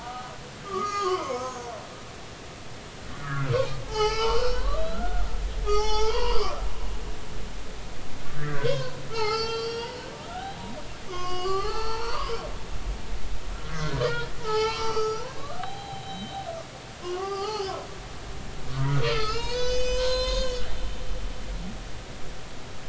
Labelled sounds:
0.0	0.4	humpback whale, 1.2 to 1.3 kHz
0.6	1.6	humpback whale, 0.93 to 6.6 kHz
3.2	5.2	humpback whale, 0.80 to 4.9 kHz
5.7	6.6	humpback whale, 0.80 to 6.6 kHz
8.4	10.6	humpback whale, 0.80 to 6.4 kHz
11.1	12.3	humpback whale, 0.80 to 6.2 kHz
13.7	16.3	humpback whale, 0.80 to 5.1 kHz
17.0	17.7	humpback whale, 0.80 to 5.2 kHz
18.7	20.6	humpback whale, 0.83 to 7.6 kHz

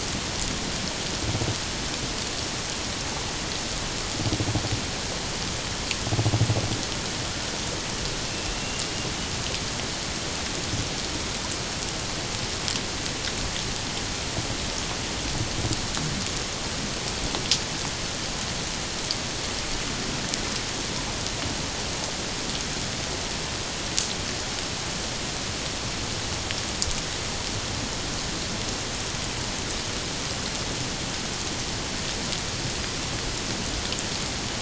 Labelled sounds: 8.3	8.6	killer whale, Bigg's (transient), 2.6 to 2.8 kHz

